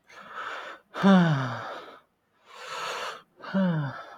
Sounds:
Sigh